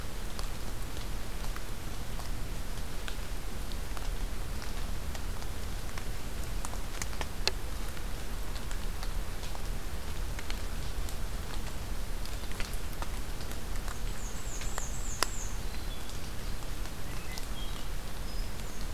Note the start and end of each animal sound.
13.9s-15.6s: Black-and-white Warbler (Mniotilta varia)
15.4s-16.6s: Hermit Thrush (Catharus guttatus)
17.0s-18.9s: Hermit Thrush (Catharus guttatus)

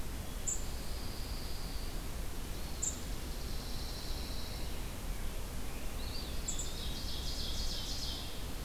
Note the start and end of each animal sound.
0.0s-8.6s: unidentified call
0.5s-2.0s: Pine Warbler (Setophaga pinus)
2.2s-3.6s: Chipping Sparrow (Spizella passerina)
2.4s-3.3s: Eastern Wood-Pewee (Contopus virens)
3.1s-5.0s: Pine Warbler (Setophaga pinus)
5.7s-7.1s: Eastern Wood-Pewee (Contopus virens)
6.1s-8.4s: Ovenbird (Seiurus aurocapilla)

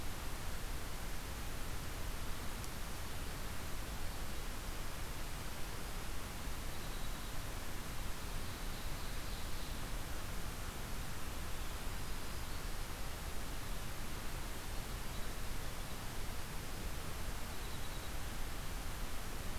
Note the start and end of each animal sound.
6.5s-7.4s: Dark-eyed Junco (Junco hyemalis)
8.1s-10.2s: Ovenbird (Seiurus aurocapilla)
11.5s-13.1s: Black-throated Green Warbler (Setophaga virens)
17.4s-18.3s: Winter Wren (Troglodytes hiemalis)

